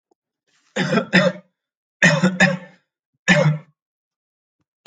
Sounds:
Cough